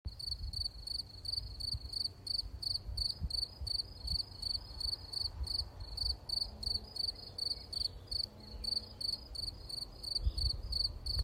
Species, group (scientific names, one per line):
Gryllus campestris
Orthoptera